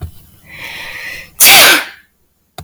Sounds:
Sneeze